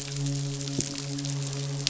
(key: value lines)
label: biophony, midshipman
recorder: SoundTrap 500